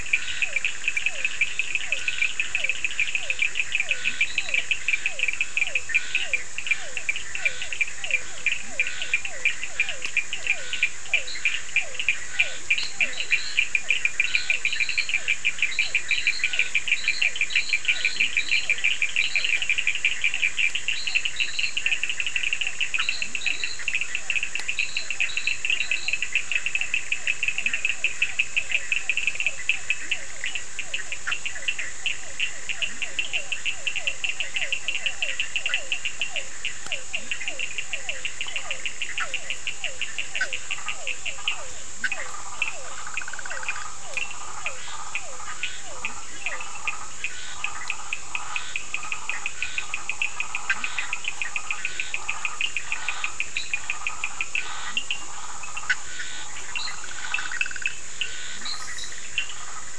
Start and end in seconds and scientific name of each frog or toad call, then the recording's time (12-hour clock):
0.0	18.2	Scinax perereca
0.0	55.7	Sphaenorhynchus surdus
0.3	14.6	Physalaemus cuvieri
11.2	26.4	Boana leptolineata
29.0	58.7	Physalaemus cuvieri
41.3	58.1	Boana prasina
12:30am